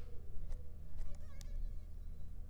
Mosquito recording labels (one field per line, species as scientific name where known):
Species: Anopheles arabiensis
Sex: female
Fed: unfed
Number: one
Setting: cup